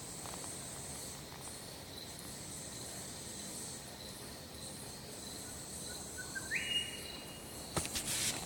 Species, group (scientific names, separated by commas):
Haemopsalta rubea, Cicadidae